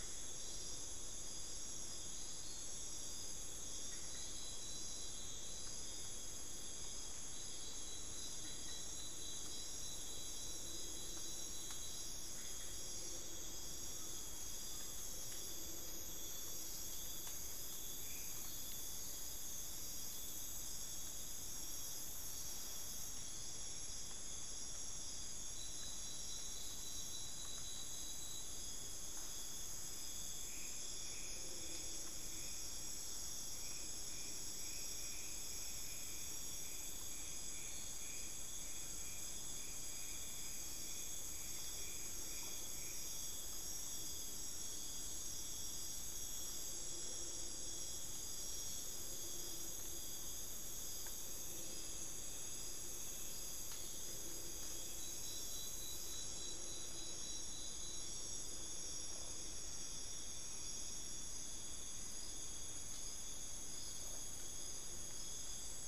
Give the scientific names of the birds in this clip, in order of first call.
Micrastur buckleyi